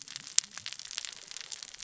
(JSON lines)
{"label": "biophony, cascading saw", "recorder": "SoundTrap 600 or HydroMoth"}